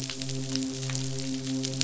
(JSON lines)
{"label": "biophony, midshipman", "recorder": "SoundTrap 500"}